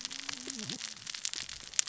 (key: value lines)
label: biophony, cascading saw
recorder: SoundTrap 600 or HydroMoth